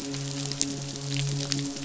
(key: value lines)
label: biophony, midshipman
recorder: SoundTrap 500